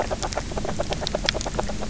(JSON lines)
{"label": "biophony, grazing", "recorder": "SoundTrap 300"}